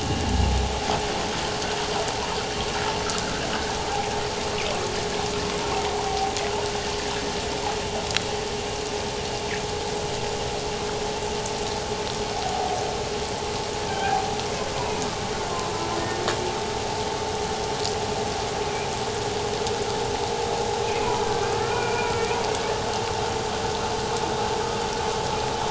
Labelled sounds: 6.1	6.3	humpback whale, 0.78 to 0.84 kHz
12.3	12.8	humpback whale, 0.78 to 0.88 kHz
13.9	14.3	humpback whale, 0.78 to 1.7 kHz
14.7	15.0	humpback whale, 0.91 to 1.1 kHz
15.7	16.0	humpback whale, 1.3 to 1.4 kHz
18.6	18.9	humpback whale, 2.2 to 2.6 kHz
21.2	22.4	humpback whale, 1.1 to 2.6 kHz

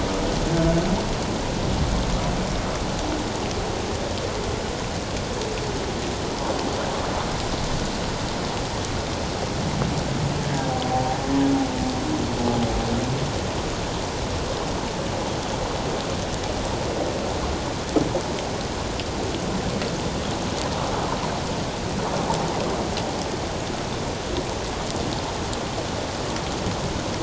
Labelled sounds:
10.7	11.0	humpback whale, 0.78 to 0.81 kHz

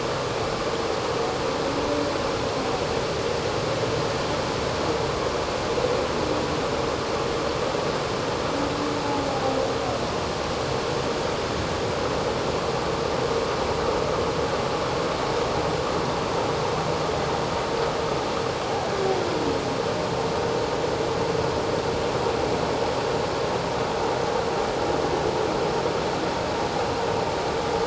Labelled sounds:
9.3	9.6	humpback whale, 0.78 to 0.84 kHz

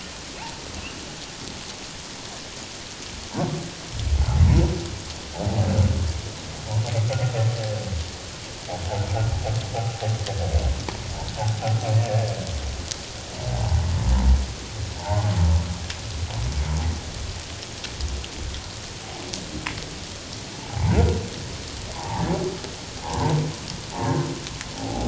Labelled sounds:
13.5	13.8	humpback whale, 0.78 to 1.0 kHz
15.0	15.3	humpback whale, 1.3 to 1.5 kHz
20.6	21.2	humpback whale, 0.78 to 1.6 kHz
21.9	22.3	humpback whale, 0.78 to 1.1 kHz
23.0	23.4	humpback whale, 0.78 to 1.1 kHz
24.8	25.0	humpback whale, 0.78 to 0.88 kHz

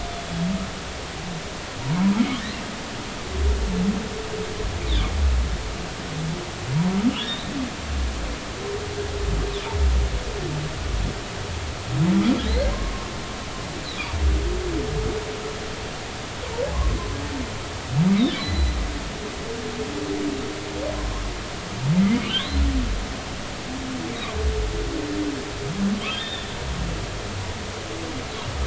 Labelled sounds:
1.8	2.1	humpback whale, 0.86 to 1.1 kHz
7.2	7.5	humpback whale, 3.2 to 4.0 kHz
12.4	12.7	humpback whale, 3.7 to 4.4 kHz
18.2	18.7	humpback whale, 1.9 to 4.1 kHz
20.9	21.2	humpback whale, 0.99 to 1.1 kHz
22.2	22.6	humpback whale, 2.7 to 4.2 kHz
26.0	26.5	humpback whale, 1.7 to 3.8 kHz

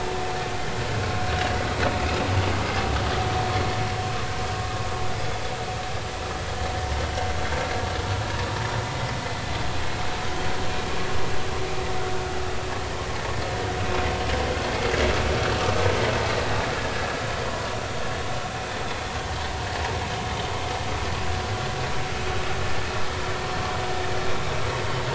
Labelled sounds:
16.9	17.2	vessel noise, 1.6 to 1.8 kHz

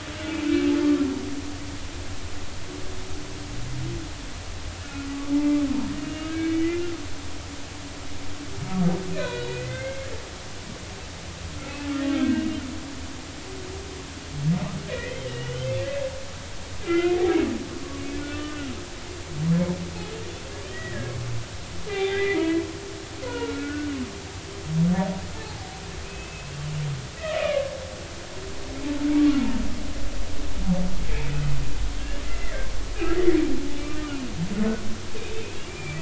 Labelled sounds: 5.3	5.6	humpback whale, 2.0 to 2.1 kHz
6.0	6.8	humpback whale, 1.5 to 2.9 kHz
9.1	10.1	humpback whale, 1.4 to 4.1 kHz
12.2	12.6	humpback whale, 1.5 to 2.9 kHz
14.9	15.7	humpback whale, 1.8 to 3.2 kHz
16.8	17.2	humpback whale, 1.3 to 2.9 kHz
18.3	18.7	humpback whale, 1.2 to 3.0 kHz
20.7	21.1	humpback whale, 1.6 to 2.0 kHz
21.9	22.6	humpback whale, 0.80 to 3.7 kHz
23.2	24.0	humpback whale, 0.90 to 2.3 kHz
25.4	25.7	humpback whale, 0.80 to 0.93 kHz
26.0	27.7	humpback whale, 1.0 to 2.7 kHz
33.3	33.6	humpback whale, 1.8 to 2.1 kHz
35.2	35.9	humpback whale, 2.3 to 3.8 kHz

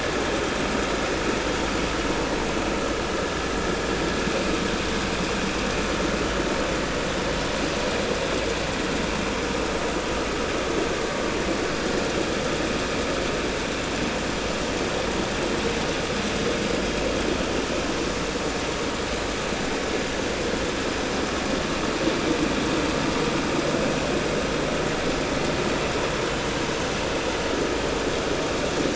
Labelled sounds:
26.3	26.5	vessel noise, 2.9 to 3.1 kHz

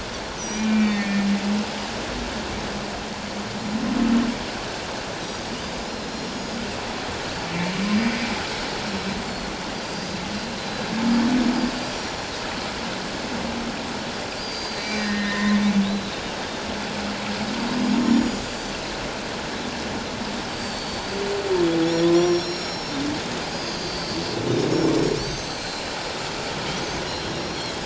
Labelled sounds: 0.4	0.7	Pacific white-sided dolphin, 5.7 to 6.2 kHz
0.5	1.3	humpback whale, 1.8 to 2.5 kHz
5.6	6.6	Pacific white-sided dolphin, 4.7 to 5.7 kHz
7.5	7.7	humpback whale, 2.2 to 2.4 kHz
7.9	8.3	Pacific white-sided dolphin, 4.7 to 4.9 kHz
9.8	10.2	Pacific white-sided dolphin, 4.6 to 5.0 kHz
10.6	10.9	Pacific white-sided dolphin, 3.9 to 4.1 kHz
11.9	12.3	Pacific white-sided dolphin, 6.9 to 7.1 kHz
14.4	16.2	Pacific white-sided dolphin, 0.97 to 6.6 kHz
14.6	15.6	humpback whale, 1.6 to 4.2 kHz
17.9	18.8	Pacific white-sided dolphin, 4.5 to 7.2 kHz
20.5	21.0	Pacific white-sided dolphin, 4.3 to 4.7 kHz
22.0	22.4	humpback whale, 0.97 to 1.1 kHz
22.1	23.0	Pacific white-sided dolphin, 3.9 to 7.1 kHz
23.5	25.8	Pacific white-sided dolphin, 4.0 to 7.8 kHz
27.1	27.8	Pacific white-sided dolphin, 3.2 to 5.7 kHz

